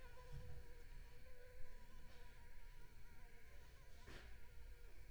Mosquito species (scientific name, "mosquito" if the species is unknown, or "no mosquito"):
Anopheles arabiensis